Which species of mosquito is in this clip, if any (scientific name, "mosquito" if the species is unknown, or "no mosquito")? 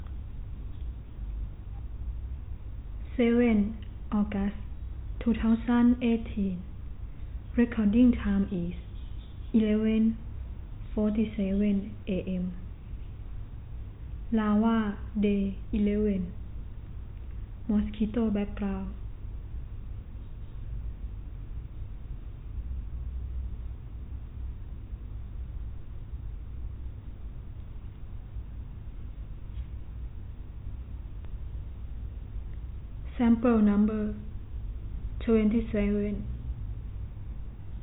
no mosquito